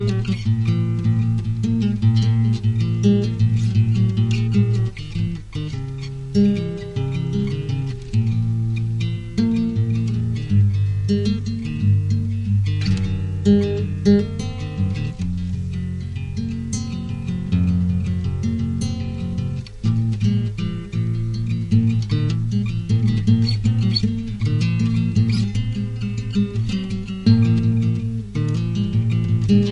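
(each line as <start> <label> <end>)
0.0 Rhythmic pulling of acoustic guitar strings in a slow to medium tempo, creating a song. 29.7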